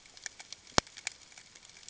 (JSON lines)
{"label": "ambient", "recorder": "HydroMoth"}